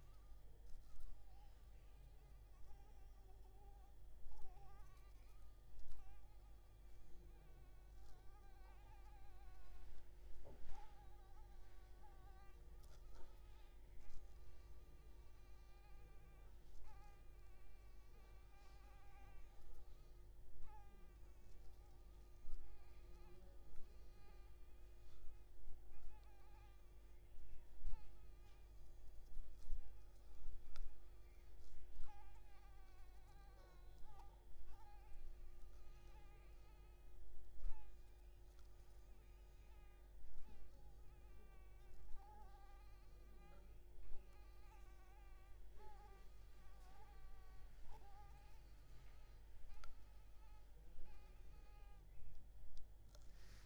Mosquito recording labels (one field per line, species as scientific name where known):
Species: Anopheles maculipalpis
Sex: female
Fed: unfed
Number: one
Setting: cup